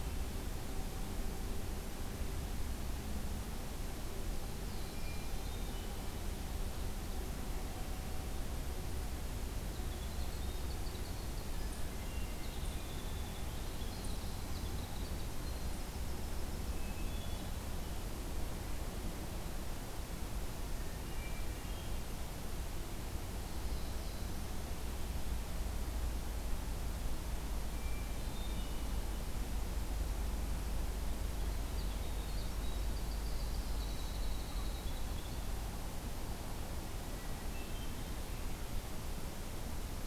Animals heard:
Black-throated Blue Warbler (Setophaga caerulescens)
Winter Wren (Troglodytes hiemalis)
Hermit Thrush (Catharus guttatus)

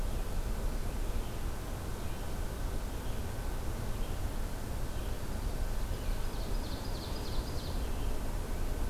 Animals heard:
Ovenbird (Seiurus aurocapilla)
Red-eyed Vireo (Vireo olivaceus)

